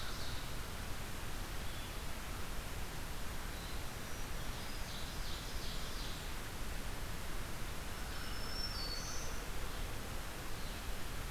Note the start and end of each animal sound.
0.0s-0.6s: Ovenbird (Seiurus aurocapilla)
0.0s-3.8s: Red-eyed Vireo (Vireo olivaceus)
3.7s-5.1s: Black-throated Green Warbler (Setophaga virens)
4.4s-6.4s: Ovenbird (Seiurus aurocapilla)
4.4s-11.3s: Red-eyed Vireo (Vireo olivaceus)
7.8s-9.4s: Black-throated Green Warbler (Setophaga virens)

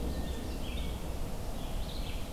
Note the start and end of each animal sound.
0.0s-2.3s: Red-eyed Vireo (Vireo olivaceus)

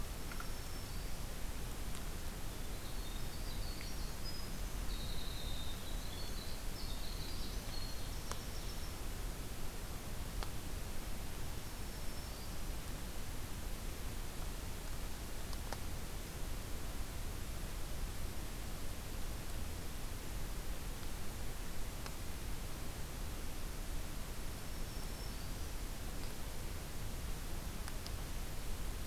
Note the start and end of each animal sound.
0.0s-1.4s: Black-throated Green Warbler (Setophaga virens)
2.1s-9.1s: Winter Wren (Troglodytes hiemalis)
6.9s-9.3s: Ovenbird (Seiurus aurocapilla)
11.3s-12.7s: Black-throated Green Warbler (Setophaga virens)
24.4s-25.9s: Black-throated Green Warbler (Setophaga virens)

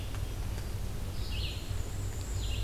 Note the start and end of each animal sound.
1.0s-2.6s: Red-eyed Vireo (Vireo olivaceus)
1.2s-2.6s: Black-and-white Warbler (Mniotilta varia)

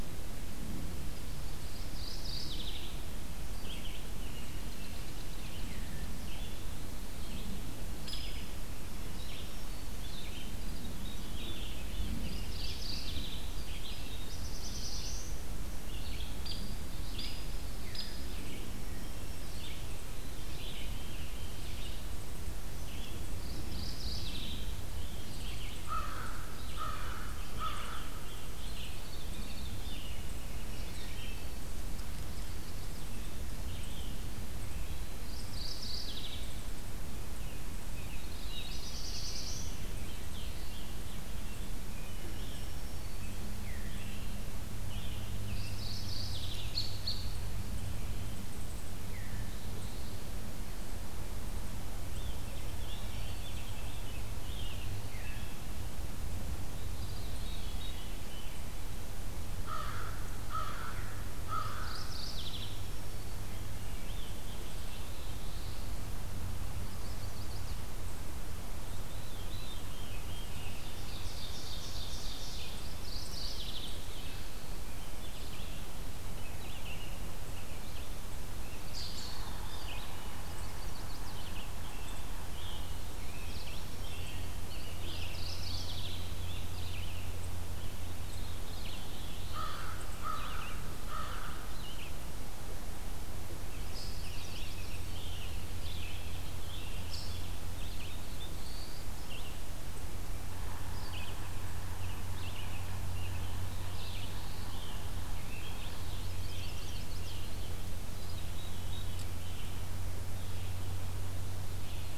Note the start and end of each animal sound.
0.0s-12.9s: Red-eyed Vireo (Vireo olivaceus)
1.8s-3.0s: Mourning Warbler (Geothlypis philadelphia)
4.1s-5.7s: American Robin (Turdus migratorius)
4.5s-6.0s: Dark-eyed Junco (Junco hyemalis)
8.0s-8.2s: Hairy Woodpecker (Dryobates villosus)
10.5s-12.4s: Veery (Catharus fuscescens)
12.2s-13.5s: Mourning Warbler (Geothlypis philadelphia)
13.4s-42.7s: Red-eyed Vireo (Vireo olivaceus)
13.5s-15.6s: Black-throated Blue Warbler (Setophaga caerulescens)
16.4s-16.7s: Hairy Woodpecker (Dryobates villosus)
17.1s-17.4s: Hairy Woodpecker (Dryobates villosus)
17.9s-18.1s: Hairy Woodpecker (Dryobates villosus)
18.5s-19.9s: Black-throated Green Warbler (Setophaga virens)
20.1s-21.9s: Veery (Catharus fuscescens)
23.5s-24.7s: Mourning Warbler (Geothlypis philadelphia)
25.8s-28.5s: American Crow (Corvus brachyrhynchos)
28.2s-30.2s: Veery (Catharus fuscescens)
30.6s-31.7s: Black-throated Green Warbler (Setophaga virens)
32.1s-33.1s: Chestnut-sided Warbler (Setophaga pensylvanica)
35.2s-36.5s: Mourning Warbler (Geothlypis philadelphia)
37.2s-38.4s: American Robin (Turdus migratorius)
38.1s-39.8s: Black-throated Blue Warbler (Setophaga caerulescens)
38.1s-40.2s: Veery (Catharus fuscescens)
40.2s-41.5s: Scarlet Tanager (Piranga olivacea)
44.7s-45.9s: American Robin (Turdus migratorius)
45.4s-46.7s: Mourning Warbler (Geothlypis philadelphia)
46.6s-47.3s: American Robin (Turdus migratorius)
49.0s-49.5s: Veery (Catharus fuscescens)
49.3s-50.2s: Black-throated Blue Warbler (Setophaga caerulescens)
52.1s-54.3s: Rose-breasted Grosbeak (Pheucticus ludovicianus)
52.7s-55.4s: Veery (Catharus fuscescens)
56.9s-58.6s: Veery (Catharus fuscescens)
59.5s-62.2s: American Crow (Corvus brachyrhynchos)
61.5s-62.9s: Mourning Warbler (Geothlypis philadelphia)
63.6s-65.1s: Rose-breasted Grosbeak (Pheucticus ludovicianus)
64.6s-65.9s: Black-throated Blue Warbler (Setophaga caerulescens)
66.6s-67.9s: Chestnut-sided Warbler (Setophaga pensylvanica)
68.8s-71.0s: Veery (Catharus fuscescens)
70.7s-72.7s: Ovenbird (Seiurus aurocapilla)
72.3s-112.2s: Red-eyed Vireo (Vireo olivaceus)
72.9s-74.0s: Mourning Warbler (Geothlypis philadelphia)
78.9s-79.4s: American Robin (Turdus migratorius)
79.2s-82.0s: Yellow-bellied Sapsucker (Sphyrapicus varius)
80.5s-81.5s: Chestnut-sided Warbler (Setophaga pensylvanica)
81.2s-84.5s: Scarlet Tanager (Piranga olivacea)
84.6s-87.2s: American Robin (Turdus migratorius)
85.1s-86.4s: Mourning Warbler (Geothlypis philadelphia)
88.2s-89.8s: Veery (Catharus fuscescens)
88.7s-89.9s: Black-throated Blue Warbler (Setophaga caerulescens)
89.3s-91.8s: American Crow (Corvus brachyrhynchos)
90.2s-92.2s: American Robin (Turdus migratorius)
93.9s-97.6s: American Robin (Turdus migratorius)
93.9s-95.1s: Chestnut-sided Warbler (Setophaga pensylvanica)
97.8s-99.1s: Black-throated Blue Warbler (Setophaga caerulescens)
100.4s-105.5s: Yellow-bellied Sapsucker (Sphyrapicus varius)
101.7s-107.7s: American Robin (Turdus migratorius)
103.5s-104.8s: Black-throated Blue Warbler (Setophaga caerulescens)
106.4s-107.7s: Chestnut-sided Warbler (Setophaga pensylvanica)
108.0s-109.7s: Veery (Catharus fuscescens)

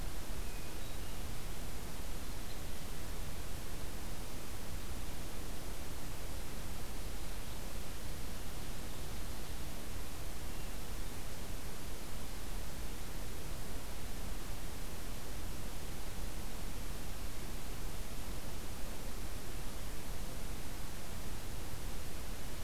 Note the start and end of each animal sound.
0.3s-1.3s: Hermit Thrush (Catharus guttatus)
2.2s-2.7s: Red Crossbill (Loxia curvirostra)

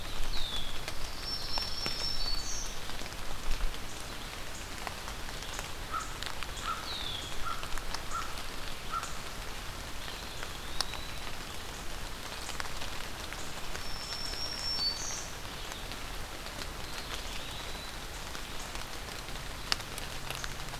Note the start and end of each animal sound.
0.0s-0.9s: Red-winged Blackbird (Agelaius phoeniceus)
0.7s-2.8s: Black-throated Green Warbler (Setophaga virens)
0.8s-2.4s: Pine Warbler (Setophaga pinus)
5.9s-9.4s: American Crow (Corvus brachyrhynchos)
6.7s-7.6s: Red-winged Blackbird (Agelaius phoeniceus)
9.9s-11.3s: Eastern Wood-Pewee (Contopus virens)
13.5s-15.3s: Black-throated Green Warbler (Setophaga virens)
16.7s-18.3s: Eastern Wood-Pewee (Contopus virens)

